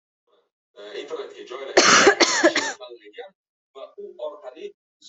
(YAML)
expert_labels:
- quality: poor
  cough_type: dry
  dyspnea: false
  wheezing: false
  stridor: false
  choking: false
  congestion: false
  nothing: false
  diagnosis: obstructive lung disease
  severity: mild
age: 24
gender: female
respiratory_condition: false
fever_muscle_pain: false
status: COVID-19